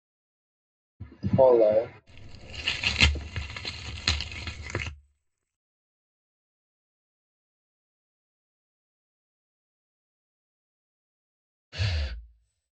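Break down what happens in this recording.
1.22-1.86 s: someone says "follow"
2.06-4.9 s: you can hear tearing
11.71-12.18 s: breathing is audible

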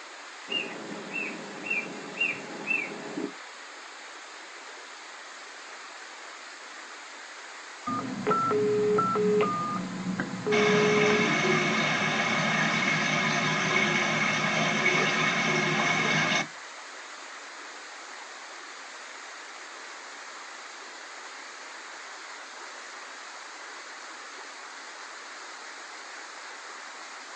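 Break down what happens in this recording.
0.47-3.27 s: a bird can be heard
7.86-11.27 s: the sound of a telephone
10.51-16.42 s: you can hear a stream

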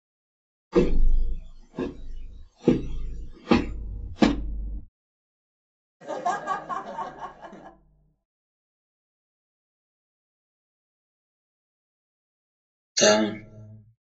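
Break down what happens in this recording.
0.71-4.33 s: someone walks
6.0-7.7 s: a person chuckles
12.97-13.37 s: a voice says "down"

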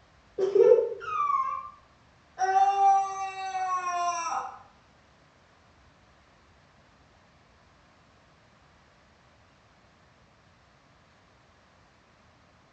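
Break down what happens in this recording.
0.35-0.79 s: someone chuckles
0.98-1.56 s: a cat meows
2.36-4.42 s: a person screams
a faint steady noise runs about 35 decibels below the sounds

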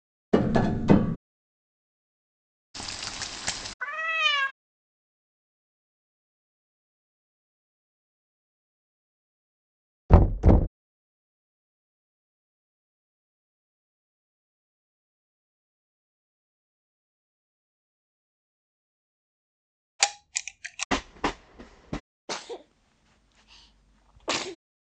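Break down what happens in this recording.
0.32-1.16 s: there is tapping
2.74-3.74 s: the sound of cooking
3.79-4.51 s: you can hear a cat
10.09-10.67 s: knocking is audible
19.99-20.85 s: the sound of a camera
20.91-22.01 s: a train is audible
22.27-24.55 s: someone sneezes

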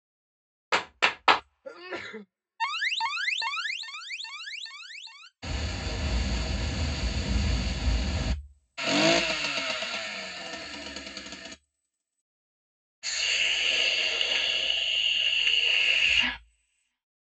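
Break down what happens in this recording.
0.71-1.41 s: someone claps
1.64-2.24 s: someone sneezes quietly
2.59-5.29 s: the sound of an alarm
5.42-8.34 s: water can be heard
8.77-11.55 s: an engine accelerates
13.02-16.38 s: hissing is audible

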